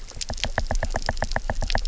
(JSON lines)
{"label": "biophony, knock", "recorder": "SoundTrap 300"}